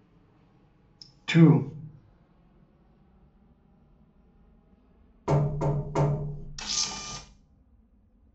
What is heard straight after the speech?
knock